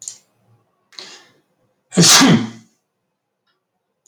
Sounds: Sneeze